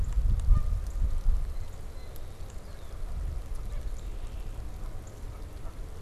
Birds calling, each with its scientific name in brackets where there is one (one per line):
Red-winged Blackbird (Agelaius phoeniceus)
Northern Cardinal (Cardinalis cardinalis)
Canada Goose (Branta canadensis)